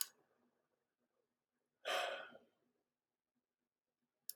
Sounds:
Sigh